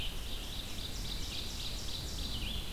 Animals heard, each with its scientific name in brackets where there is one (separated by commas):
Red-eyed Vireo (Vireo olivaceus), Ovenbird (Seiurus aurocapilla)